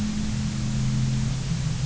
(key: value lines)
label: anthrophony, boat engine
recorder: SoundTrap 300